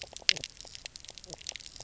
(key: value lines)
label: biophony, knock croak
recorder: SoundTrap 300